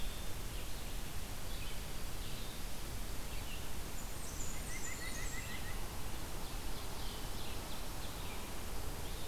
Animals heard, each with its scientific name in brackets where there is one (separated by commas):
Blackburnian Warbler (Setophaga fusca), Red-eyed Vireo (Vireo olivaceus), White-breasted Nuthatch (Sitta carolinensis), Ovenbird (Seiurus aurocapilla)